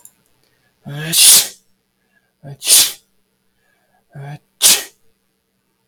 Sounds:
Sneeze